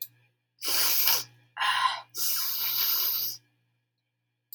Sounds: Sniff